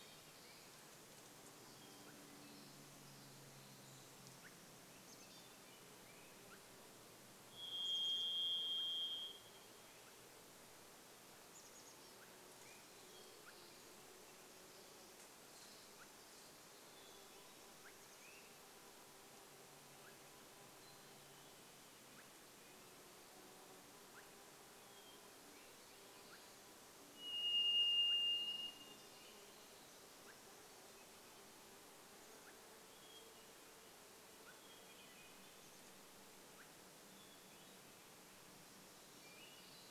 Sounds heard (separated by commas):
Red-breasted Nuthatch song, Chestnut-backed Chickadee call, Swainson's Thrush call, unidentified sound, insect buzz, Varied Thrush song, Townsend's Warbler call, Hermit Thrush song